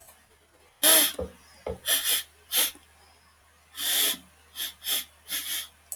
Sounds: Sniff